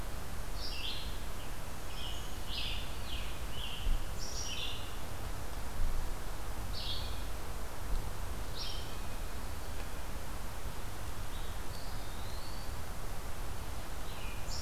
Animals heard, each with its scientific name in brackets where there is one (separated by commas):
Scarlet Tanager (Piranga olivacea), Eastern Wood-Pewee (Contopus virens), Black-throated Green Warbler (Setophaga virens), Red-eyed Vireo (Vireo olivaceus)